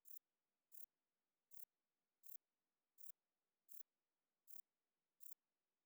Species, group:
Pterolepis spoliata, Orthoptera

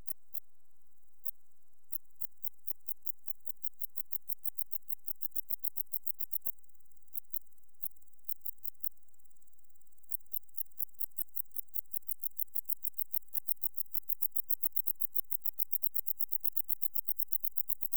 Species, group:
Decticus verrucivorus, Orthoptera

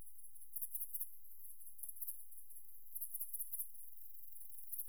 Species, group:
Tettigonia viridissima, Orthoptera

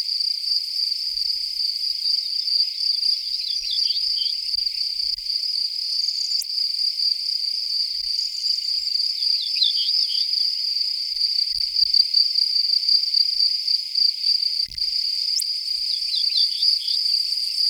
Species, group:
Gryllus campestris, Orthoptera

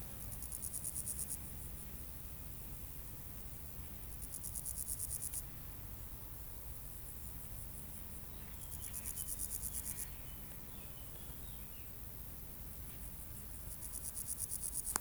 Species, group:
Pseudochorthippus parallelus, Orthoptera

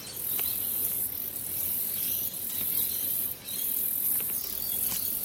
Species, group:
Telmapsalta hackeri, Cicadidae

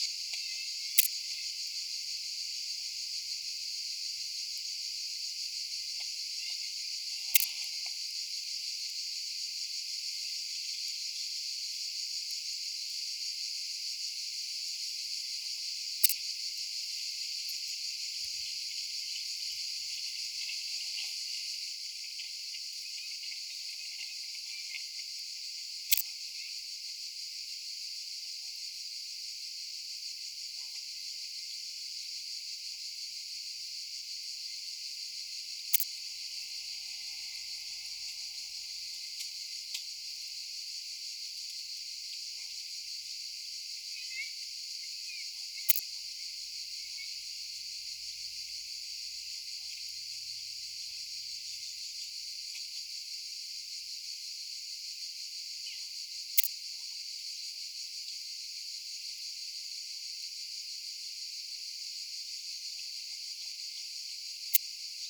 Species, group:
Poecilimon jonicus, Orthoptera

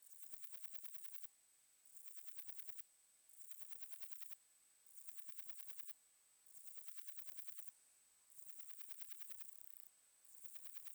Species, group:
Parnassiana chelmos, Orthoptera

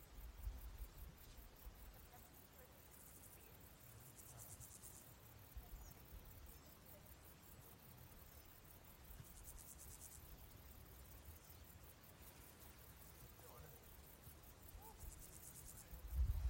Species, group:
Pseudochorthippus parallelus, Orthoptera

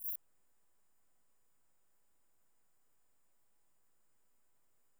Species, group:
Eupholidoptera latens, Orthoptera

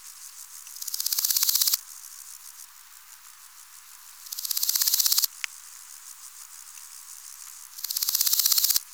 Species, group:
Chrysochraon dispar, Orthoptera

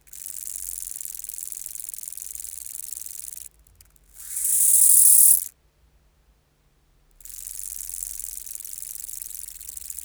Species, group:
Chorthippus biguttulus, Orthoptera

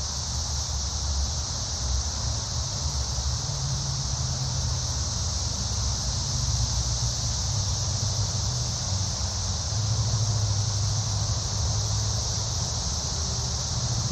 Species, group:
Magicicada cassini, Cicadidae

